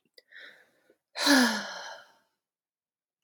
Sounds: Sigh